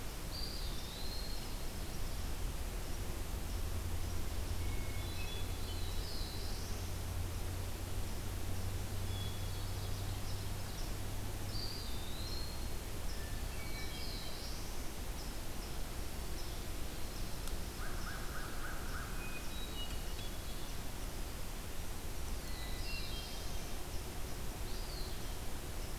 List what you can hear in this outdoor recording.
Eastern Wood-Pewee, Hermit Thrush, Black-throated Blue Warbler, Ovenbird, American Crow